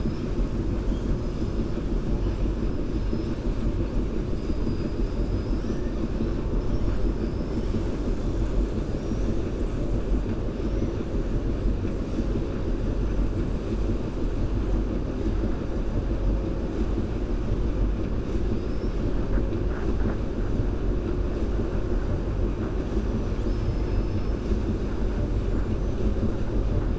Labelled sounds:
18.5	19.1	killer whale, 4.7 to 5.5 kHz

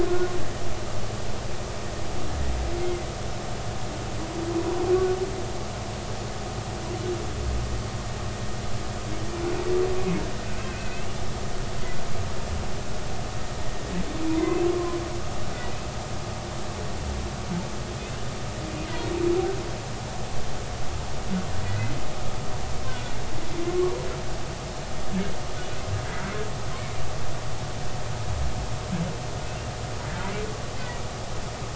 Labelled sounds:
2.8	3.1	humpback whale, 2.0 to 2.2 kHz
10.6	11.1	humpback whale, 1.5 to 2.8 kHz
14.3	15.0	humpback whale, 0.90 to 2.8 kHz
21.6	21.9	humpback whale, 1.9 to 2.1 kHz
22.8	23.1	humpback whale, 1.4 to 1.6 kHz

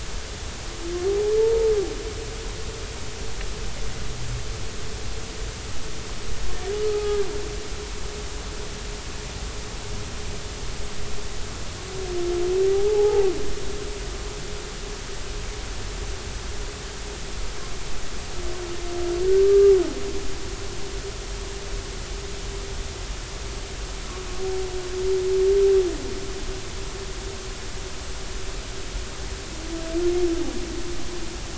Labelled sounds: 1.4	1.7	humpback whale, 0.86 to 0.96 kHz
6.8	7.2	humpback whale, 0.80 to 1.3 kHz
12.7	13.3	humpback whale, 0.80 to 0.93 kHz
19.4	19.7	humpback whale, 1.1 to 1.2 kHz

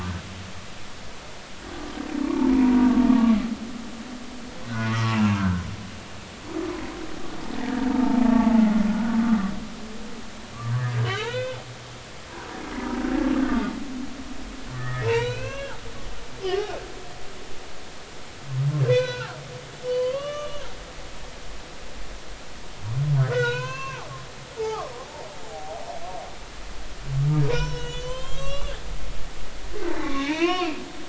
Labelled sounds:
4.8	5.6	humpback whale, 1.4 to 2.8 kHz
7.9	8.6	humpback whale, 0.80 to 1.2 kHz
8.9	9.2	humpback whale, 1.4 to 1.6 kHz
11.0	11.6	humpback whale, 1.1 to 4.1 kHz
14.7	16.7	humpback whale, 0.86 to 4.1 kHz
18.9	19.4	humpback whale, 0.83 to 4.1 kHz
19.8	20.7	humpback whale, 0.96 to 3.6 kHz
23.2	24.1	humpback whale, 0.80 to 6.5 kHz
24.6	24.9	humpback whale, 0.80 to 1.4 kHz
25.4	25.8	humpback whale, 0.80 to 0.90 kHz
27.5	30.8	humpback whale, 0.83 to 7.8 kHz

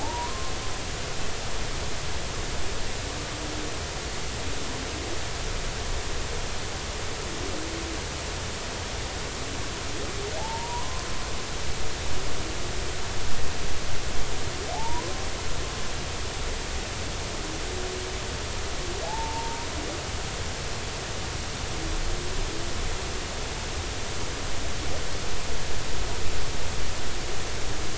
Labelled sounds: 0.0	0.5	humpback whale, 0.80 to 1.1 kHz
10.4	11.0	humpback whale, 0.80 to 1.1 kHz
14.7	15.1	humpback whale, 0.80 to 1.1 kHz
19.0	19.7	humpback whale, 0.80 to 0.99 kHz

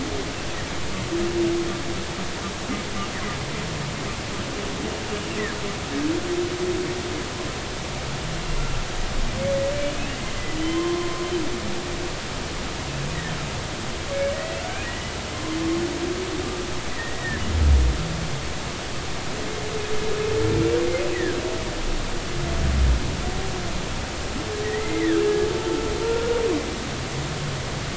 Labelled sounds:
10.6	11.3	humpback whale, 0.99 to 3.2 kHz
14.3	14.9	humpback whale, 1.4 to 2.0 kHz
16.9	17.4	humpback whale, 1.6 to 2.0 kHz
24.6	25.5	humpback whale, 1.5 to 2.2 kHz
26.0	26.4	humpback whale, 1.3 to 1.5 kHz

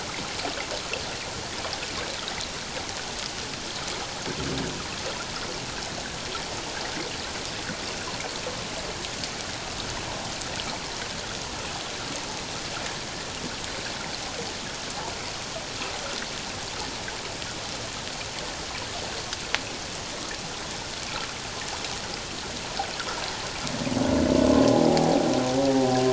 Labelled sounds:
24.7	25.3	humpback whale, 0.78 to 0.88 kHz

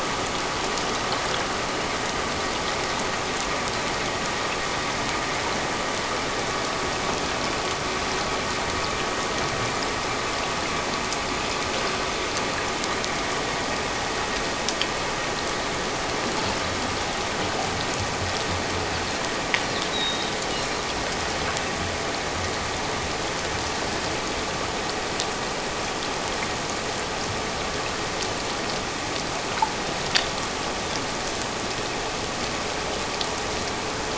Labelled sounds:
19.9	20.3	Pacific white-sided dolphin, 3.7 to 3.9 kHz

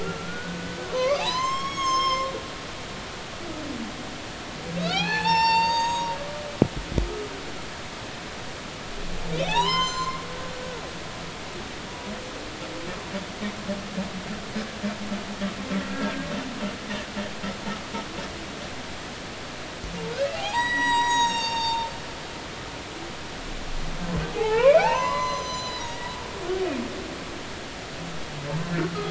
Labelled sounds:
0.0	2.3	humpback whale, 0.80 to 7.7 kHz
4.7	6.2	humpback whale, 0.80 to 7.6 kHz
7.0	7.3	humpback whale, 1.2 to 1.3 kHz
9.4	10.2	humpback whale, 0.80 to 7.3 kHz
15.9	16.3	humpback whale, 1.5 to 1.7 kHz
20.3	21.9	humpback whale, 0.80 to 7.8 kHz
24.3	26.0	humpback whale, 0.80 to 8.0 kHz

